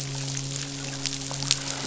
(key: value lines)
label: biophony, midshipman
recorder: SoundTrap 500